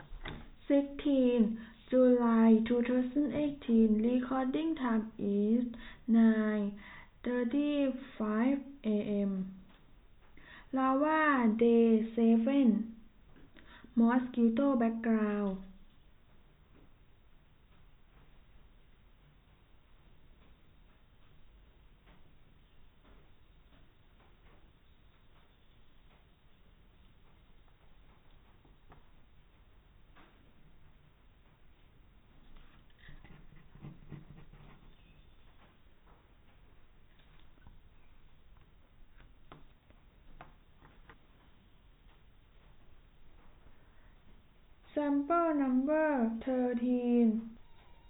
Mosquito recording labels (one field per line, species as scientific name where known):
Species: no mosquito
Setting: cup